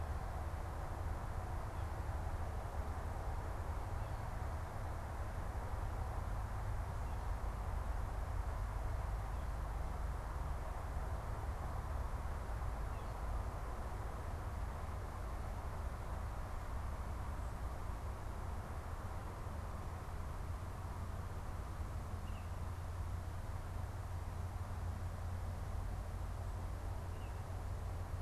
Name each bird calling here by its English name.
Baltimore Oriole